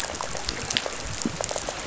{"label": "biophony", "recorder": "SoundTrap 500"}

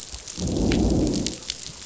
{"label": "biophony, growl", "recorder": "SoundTrap 500"}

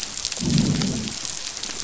{"label": "biophony, growl", "recorder": "SoundTrap 500"}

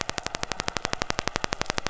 {"label": "anthrophony, boat engine", "recorder": "SoundTrap 500"}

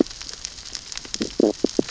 {"label": "biophony, stridulation", "recorder": "SoundTrap 600 or HydroMoth"}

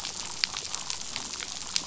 {"label": "biophony, damselfish", "recorder": "SoundTrap 500"}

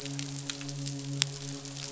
{"label": "biophony, midshipman", "recorder": "SoundTrap 500"}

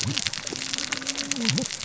{"label": "biophony, cascading saw", "recorder": "SoundTrap 600 or HydroMoth"}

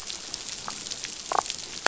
{"label": "biophony, damselfish", "recorder": "SoundTrap 500"}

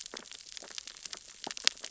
{"label": "biophony, sea urchins (Echinidae)", "recorder": "SoundTrap 600 or HydroMoth"}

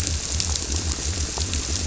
{"label": "biophony", "recorder": "SoundTrap 300"}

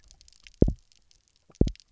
{"label": "biophony, double pulse", "recorder": "SoundTrap 300"}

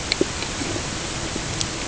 {"label": "ambient", "recorder": "HydroMoth"}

